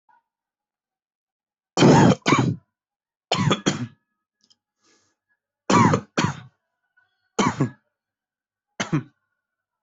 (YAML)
expert_labels:
- quality: good
  cough_type: wet
  dyspnea: false
  wheezing: false
  stridor: false
  choking: false
  congestion: false
  nothing: true
  diagnosis: upper respiratory tract infection
  severity: mild
age: 29
gender: male
respiratory_condition: false
fever_muscle_pain: false
status: COVID-19